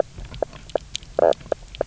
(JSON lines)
{"label": "biophony, knock croak", "recorder": "SoundTrap 300"}